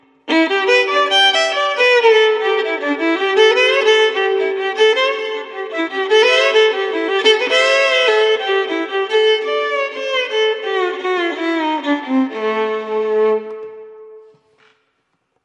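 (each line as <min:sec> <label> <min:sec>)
0:00.3 A violin is being played indoors with a slight echo. 0:14.9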